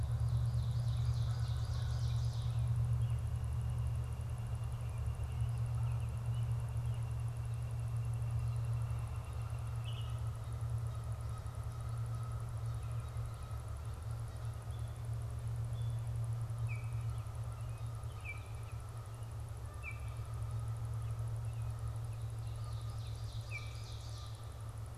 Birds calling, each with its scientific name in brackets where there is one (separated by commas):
Canada Goose (Branta canadensis), Northern Flicker (Colaptes auratus), Baltimore Oriole (Icterus galbula), Ovenbird (Seiurus aurocapilla)